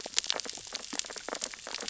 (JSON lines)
{"label": "biophony, sea urchins (Echinidae)", "recorder": "SoundTrap 600 or HydroMoth"}